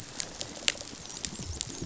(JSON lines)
{"label": "biophony, rattle response", "recorder": "SoundTrap 500"}